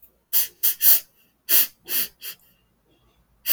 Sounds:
Sniff